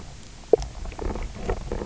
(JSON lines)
{"label": "biophony, knock croak", "recorder": "SoundTrap 300"}